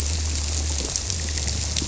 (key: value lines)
label: biophony
recorder: SoundTrap 300